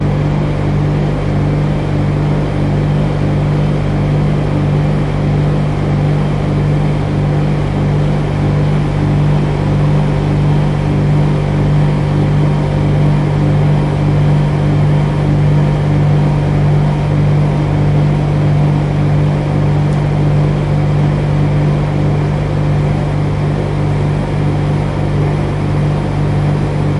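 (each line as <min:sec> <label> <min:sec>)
0:00.0 A loud fan is running inside a machine. 0:27.0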